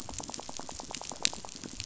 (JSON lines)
{"label": "biophony, rattle", "recorder": "SoundTrap 500"}